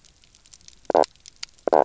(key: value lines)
label: biophony, knock croak
recorder: SoundTrap 300